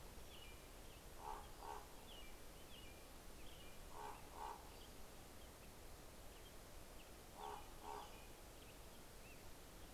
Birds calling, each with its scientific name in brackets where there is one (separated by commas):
American Robin (Turdus migratorius), Common Raven (Corvus corax), Pacific-slope Flycatcher (Empidonax difficilis)